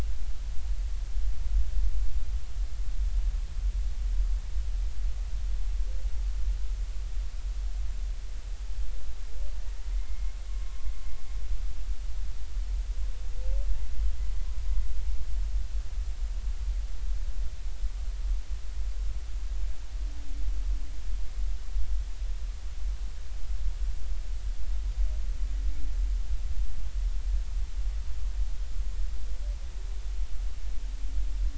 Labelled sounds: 9.9	10.3	humpback whale, 2.0 to 2.2 kHz

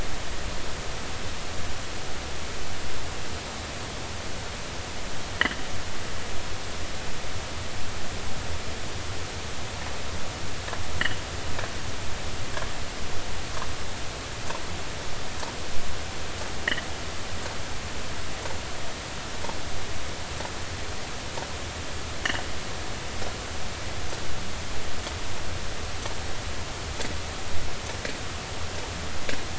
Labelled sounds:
5.3	5.6	sperm whale, 1.6 to 2.1 kHz
16.6	16.8	sperm whale, 2.8 to 3.2 kHz

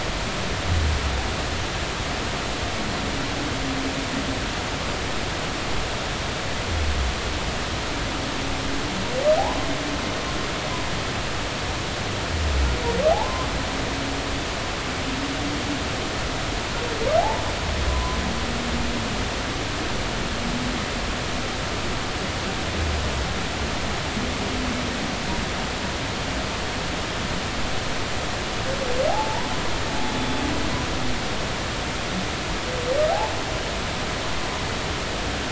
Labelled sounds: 13.1	13.5	humpback whale, 0.80 to 1.2 kHz
17.2	17.4	humpback whale, 0.80 to 1.0 kHz
17.9	18.2	humpback whale, 0.96 to 1.1 kHz
29.1	29.5	humpback whale, 0.80 to 1.0 kHz

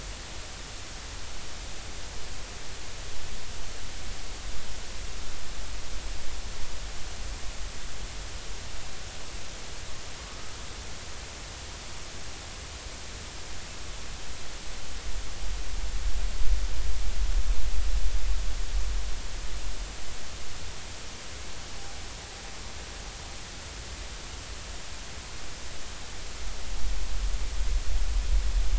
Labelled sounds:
10.3	10.5	humpback whale, 1.2 to 1.3 kHz

